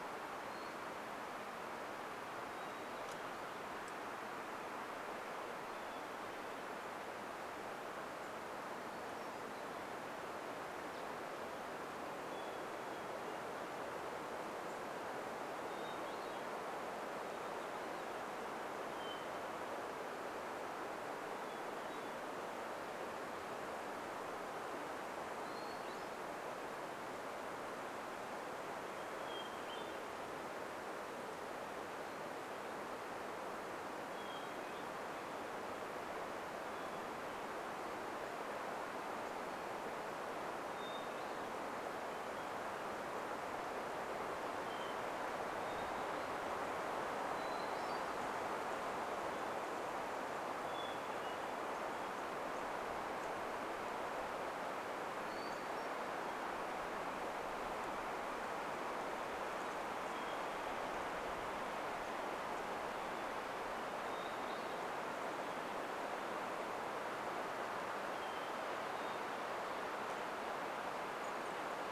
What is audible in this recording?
Hermit Thrush song, unidentified sound, unidentified bird chip note, Chestnut-backed Chickadee call